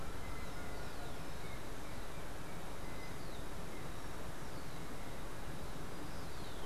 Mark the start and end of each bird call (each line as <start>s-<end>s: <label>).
0.0s-6.7s: Rufous-collared Sparrow (Zonotrichia capensis)